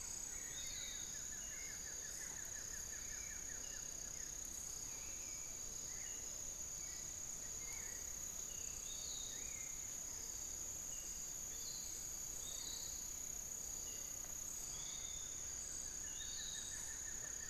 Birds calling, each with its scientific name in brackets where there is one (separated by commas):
Piratic Flycatcher (Legatus leucophaius), Hauxwell's Thrush (Turdus hauxwelli), Spix's Guan (Penelope jacquacu), Buff-throated Woodcreeper (Xiphorhynchus guttatus)